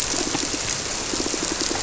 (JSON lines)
{"label": "biophony, squirrelfish (Holocentrus)", "recorder": "SoundTrap 300"}